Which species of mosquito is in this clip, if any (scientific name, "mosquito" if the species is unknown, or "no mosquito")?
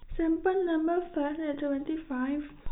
no mosquito